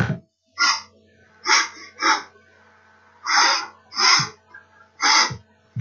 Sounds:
Sniff